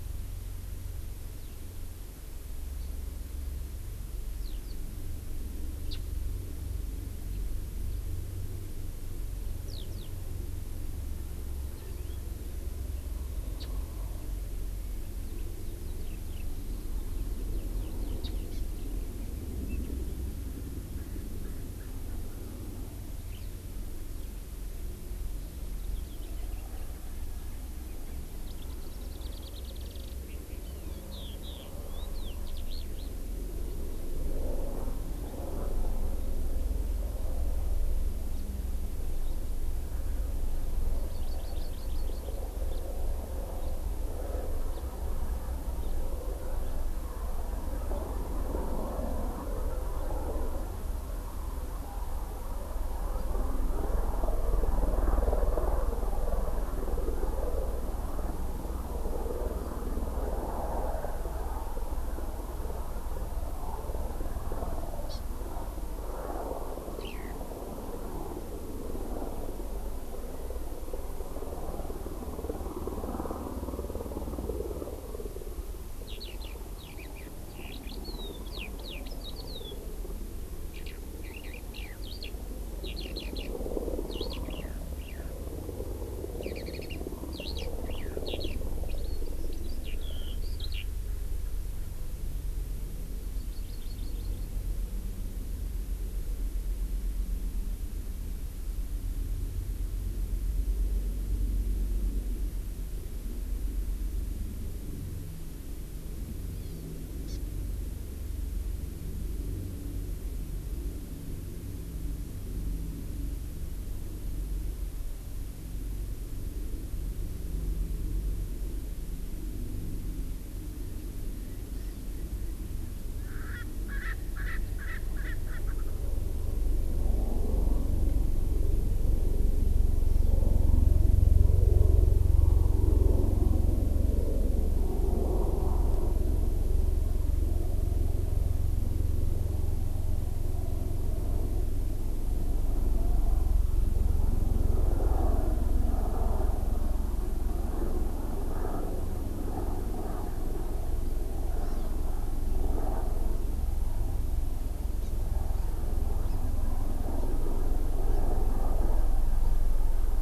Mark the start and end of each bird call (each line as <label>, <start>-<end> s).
Eurasian Skylark (Alauda arvensis), 1.4-1.6 s
Eurasian Skylark (Alauda arvensis), 4.4-4.8 s
Japanese Bush Warbler (Horornis diphone), 5.9-6.0 s
Eurasian Skylark (Alauda arvensis), 9.7-10.1 s
House Finch (Haemorhous mexicanus), 11.7-12.1 s
Japanese Bush Warbler (Horornis diphone), 13.6-13.7 s
Eurasian Skylark (Alauda arvensis), 16.0-16.5 s
Eurasian Skylark (Alauda arvensis), 17.5-18.1 s
Japanese Bush Warbler (Horornis diphone), 18.2-18.3 s
Hawaii Amakihi (Chlorodrepanis virens), 18.5-18.6 s
Erckel's Francolin (Pternistis erckelii), 20.9-22.9 s
Eurasian Skylark (Alauda arvensis), 23.3-23.5 s
Warbling White-eye (Zosterops japonicus), 28.4-30.2 s
Hawaii Amakihi (Chlorodrepanis virens), 30.6-31.1 s
Eurasian Skylark (Alauda arvensis), 31.1-33.2 s
Hawaii Amakihi (Chlorodrepanis virens), 40.9-42.4 s
House Finch (Haemorhous mexicanus), 42.7-42.8 s
House Finch (Haemorhous mexicanus), 43.6-43.7 s
House Finch (Haemorhous mexicanus), 44.7-44.8 s
House Finch (Haemorhous mexicanus), 45.8-45.9 s
Hawaii Amakihi (Chlorodrepanis virens), 65.1-65.2 s
Eurasian Skylark (Alauda arvensis), 66.9-67.4 s
Eurasian Skylark (Alauda arvensis), 76.0-79.8 s
Eurasian Skylark (Alauda arvensis), 80.7-82.3 s
Eurasian Skylark (Alauda arvensis), 82.8-83.5 s
Eurasian Skylark (Alauda arvensis), 84.0-85.3 s
Eurasian Skylark (Alauda arvensis), 86.4-90.8 s
Hawaii Amakihi (Chlorodrepanis virens), 93.3-94.5 s
Hawaii Amakihi (Chlorodrepanis virens), 106.5-106.9 s
Hawaii Amakihi (Chlorodrepanis virens), 107.3-107.4 s
Hawaii Amakihi (Chlorodrepanis virens), 121.8-122.1 s
Erckel's Francolin (Pternistis erckelii), 123.1-125.9 s
Hawaii Amakihi (Chlorodrepanis virens), 151.6-151.9 s
Hawaii Amakihi (Chlorodrepanis virens), 155.0-155.1 s
Hawaii Amakihi (Chlorodrepanis virens), 156.2-156.4 s
Hawaii Amakihi (Chlorodrepanis virens), 158.0-158.2 s